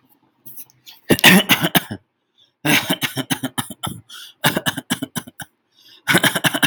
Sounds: Cough